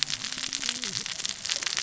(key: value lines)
label: biophony, cascading saw
recorder: SoundTrap 600 or HydroMoth